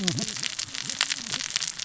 {"label": "biophony, cascading saw", "recorder": "SoundTrap 600 or HydroMoth"}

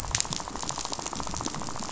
{"label": "biophony, rattle", "recorder": "SoundTrap 500"}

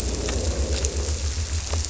{"label": "biophony", "recorder": "SoundTrap 300"}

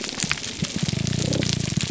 {"label": "biophony, grouper groan", "recorder": "SoundTrap 300"}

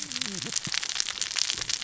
{"label": "biophony, cascading saw", "recorder": "SoundTrap 600 or HydroMoth"}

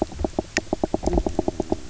{"label": "biophony, knock croak", "recorder": "SoundTrap 300"}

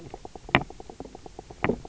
{"label": "biophony, knock croak", "recorder": "SoundTrap 300"}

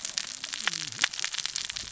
{"label": "biophony, cascading saw", "recorder": "SoundTrap 600 or HydroMoth"}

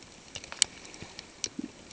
{"label": "ambient", "recorder": "HydroMoth"}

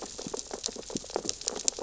{"label": "biophony, sea urchins (Echinidae)", "recorder": "SoundTrap 600 or HydroMoth"}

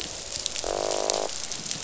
{"label": "biophony, croak", "recorder": "SoundTrap 500"}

